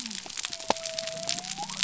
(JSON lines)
{"label": "biophony", "recorder": "SoundTrap 300"}